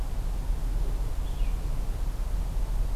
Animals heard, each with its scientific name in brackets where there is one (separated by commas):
Red-eyed Vireo (Vireo olivaceus)